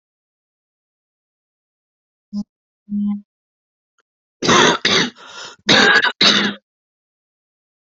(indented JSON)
{
  "expert_labels": [
    {
      "quality": "good",
      "cough_type": "wet",
      "dyspnea": false,
      "wheezing": false,
      "stridor": false,
      "choking": false,
      "congestion": false,
      "nothing": true,
      "diagnosis": "obstructive lung disease",
      "severity": "severe"
    }
  ],
  "age": 36,
  "gender": "female",
  "respiratory_condition": false,
  "fever_muscle_pain": false,
  "status": "symptomatic"
}